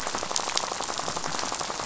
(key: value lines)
label: biophony, rattle
recorder: SoundTrap 500